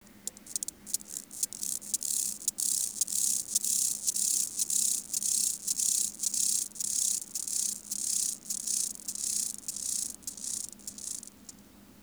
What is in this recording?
Chorthippus mollis, an orthopteran